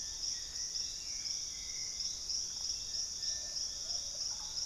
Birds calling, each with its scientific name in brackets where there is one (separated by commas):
Russet-backed Oropendola (Psarocolius angustifrons), Plumbeous Pigeon (Patagioenas plumbea), Hauxwell's Thrush (Turdus hauxwelli)